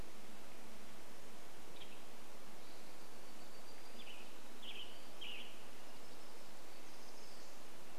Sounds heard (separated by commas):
warbler song, Western Tanager song, Western Tanager call